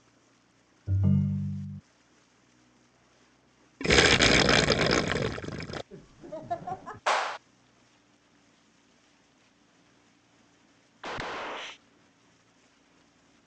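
At 0.86 seconds, you can hear a ringtone. Then, at 3.79 seconds, water gurgles. After that, at 5.9 seconds, someone chuckles. Following that, at 7.06 seconds, there is clapping. Finally, at 11.0 seconds, gunfire can be heard.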